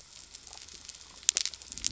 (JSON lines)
{"label": "biophony", "recorder": "SoundTrap 300"}